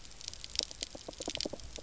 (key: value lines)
label: biophony
recorder: SoundTrap 300